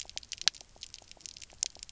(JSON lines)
{"label": "biophony, knock croak", "recorder": "SoundTrap 300"}